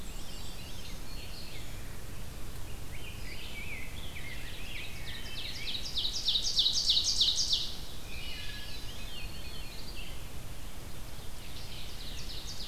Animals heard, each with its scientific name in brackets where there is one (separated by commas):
Scarlet Tanager (Piranga olivacea), Ovenbird (Seiurus aurocapilla), Red-eyed Vireo (Vireo olivaceus), Rose-breasted Grosbeak (Pheucticus ludovicianus), Wood Thrush (Hylocichla mustelina), Veery (Catharus fuscescens), Black-throated Green Warbler (Setophaga virens), Black-and-white Warbler (Mniotilta varia)